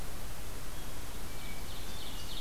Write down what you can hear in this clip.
Hermit Thrush, Ovenbird